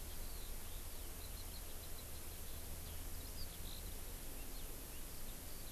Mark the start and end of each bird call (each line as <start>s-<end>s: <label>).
0.0s-5.7s: Eurasian Skylark (Alauda arvensis)